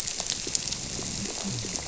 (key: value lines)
label: biophony
recorder: SoundTrap 300